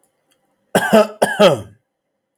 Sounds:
Cough